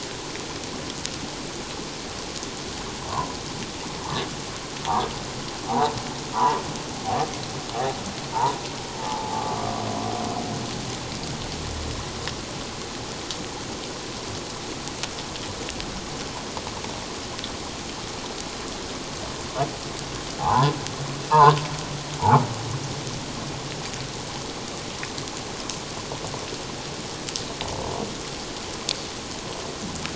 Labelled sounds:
3.1	3.4	humpback whale, 0.78 to 1.2 kHz
4.8	5.9	humpback whale, 0.78 to 1.3 kHz
6.3	6.6	humpback whale, 0.84 to 1.5 kHz
8.3	8.6	humpback whale, 0.81 to 1.0 kHz
9.0	9.7	humpback whale, 0.78 to 1.2 kHz
20.4	20.7	humpback whale, 0.78 to 1.3 kHz
21.3	21.6	humpback whale, 0.81 to 1.3 kHz

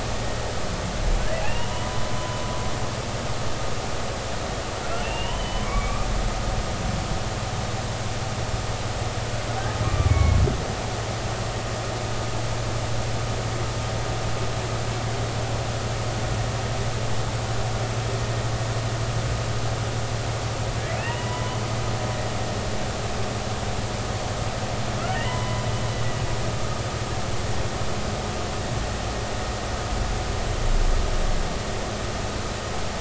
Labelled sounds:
1.4	1.7	humpback whale, 2.5 to 2.9 kHz
5.0	6.1	humpback whale, 2.1 to 3.1 kHz
9.8	10.4	humpback whale, 1.0 to 2.4 kHz
21.0	21.6	humpback whale, 0.93 to 3.0 kHz
25.1	25.7	humpback whale, 0.90 to 3.1 kHz

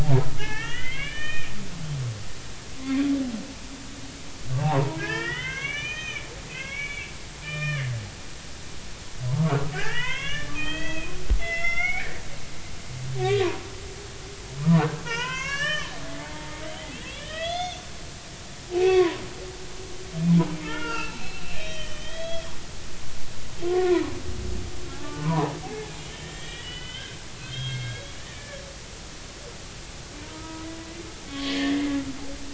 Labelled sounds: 0.0	1.5	humpback whale, 0.80 to 3.5 kHz
2.8	3.0	humpback whale, 0.99 to 1.2 kHz
4.6	7.1	humpback whale, 0.80 to 6.4 kHz
7.4	7.8	humpback whale, 1.1 to 5.5 kHz
8.4	11.1	humpback whale, 0.80 to 6.6 kHz
11.4	12.1	humpback whale, 1.3 to 5.9 kHz
13.2	13.6	humpback whale, 0.90 to 1.2 kHz
15.0	15.9	humpback whale, 0.86 to 5.8 kHz
16.2	19.2	humpback whale, 0.80 to 6.6 kHz
20.6	22.5	humpback whale, 0.80 to 4.2 kHz
23.6	24.0	humpback whale, 0.93 to 1.2 kHz
24.9	25.5	humpback whale, 0.80 to 1.2 kHz
26.0	28.6	humpback whale, 1.4 to 7.5 kHz
30.3	31.9	humpback whale, 0.90 to 3.5 kHz

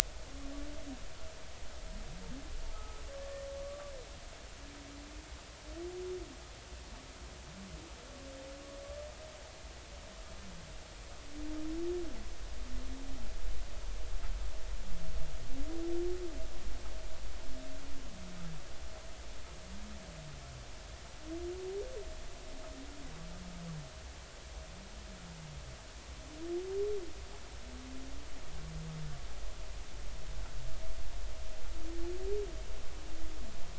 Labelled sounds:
2.6	3.0	humpback whale, 0.80 to 1.3 kHz
3.6	3.9	humpback whale, 1.1 to 1.2 kHz

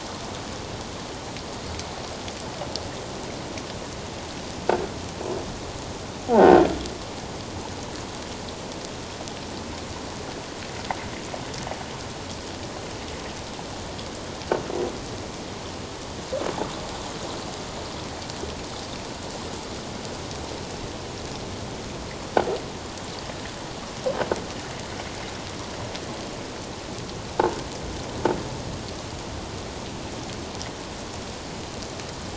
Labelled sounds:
6.2	6.6	croaking sound likely from a nearby submerged object, 0.78 to 1.6 kHz

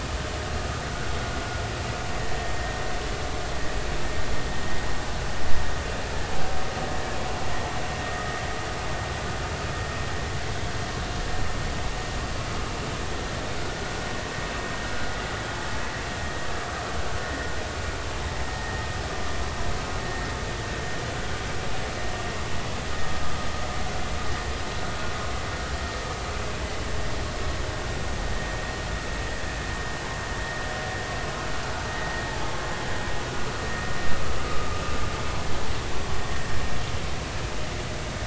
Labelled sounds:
18.5	18.8	vessel noise, 1.8 to 1.9 kHz
34.5	34.8	vessel noise, 1.2 to 1.3 kHz

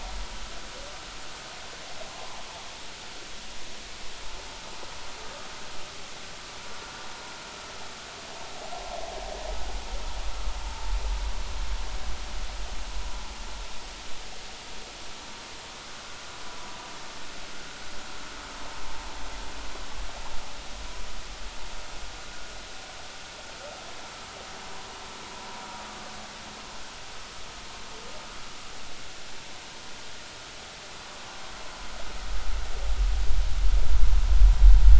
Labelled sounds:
10.7	10.9	vessel noise, 0.83 to 0.96 kHz

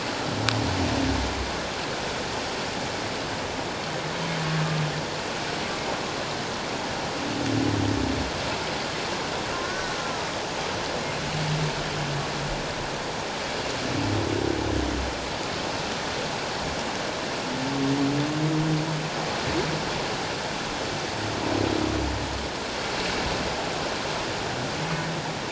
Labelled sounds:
9.6	10.0	humpback whale, 1.4 to 1.9 kHz

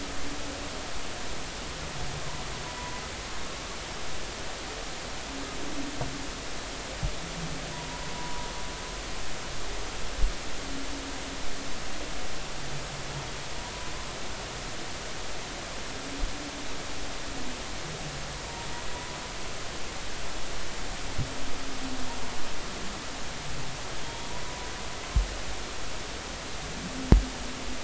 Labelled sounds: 8.2	8.5	humpback whale, 0.93 to 1.0 kHz
18.9	19.2	humpback whale, 0.93 to 1.1 kHz
24.0	24.7	humpback whale, 0.96 to 3.4 kHz

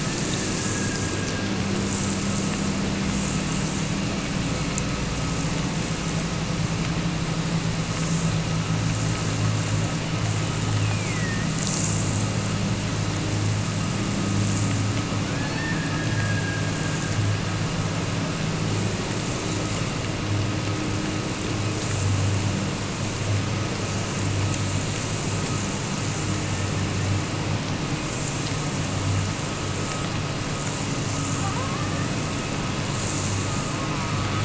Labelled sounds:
0.0	1.8	killer whale, Bigg's (transient), Gulf of Alaska transient, 1.5 to 1.8 kHz
10.7	11.5	killer whale, Bigg's (transient), Gulf of Alaska transient, 1.7 to 3.1 kHz
15.3	17.3	killer whale, Bigg's (transient), Gulf of Alaska transient, 1.3 to 5.5 kHz

